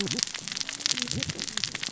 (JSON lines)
{"label": "biophony, cascading saw", "recorder": "SoundTrap 600 or HydroMoth"}